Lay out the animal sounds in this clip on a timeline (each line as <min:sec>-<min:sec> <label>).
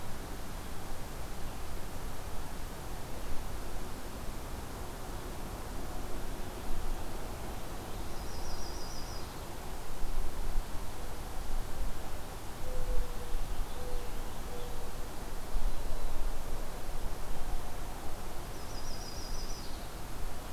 0:08.0-0:09.4 Yellow-rumped Warbler (Setophaga coronata)
0:13.1-0:14.8 Purple Finch (Haemorhous purpureus)
0:18.5-0:19.8 Yellow-rumped Warbler (Setophaga coronata)